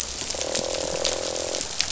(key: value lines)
label: biophony, croak
recorder: SoundTrap 500